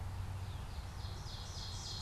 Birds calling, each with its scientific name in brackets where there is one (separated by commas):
Northern Cardinal (Cardinalis cardinalis), Ovenbird (Seiurus aurocapilla)